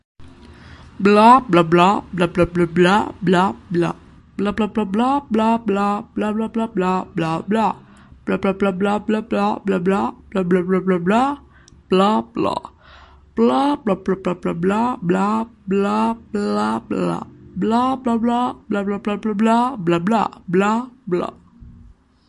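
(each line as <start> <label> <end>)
0.0 A person quietly repeats a word multiple times indoors. 22.3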